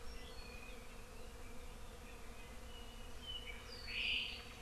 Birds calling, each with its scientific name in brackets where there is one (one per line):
Apapane (Himatione sanguinea)